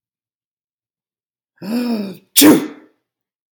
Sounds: Sneeze